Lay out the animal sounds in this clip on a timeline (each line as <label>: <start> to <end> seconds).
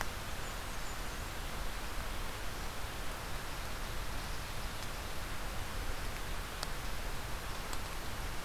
Blackburnian Warbler (Setophaga fusca): 0.0 to 1.5 seconds